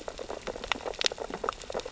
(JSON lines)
{"label": "biophony, sea urchins (Echinidae)", "recorder": "SoundTrap 600 or HydroMoth"}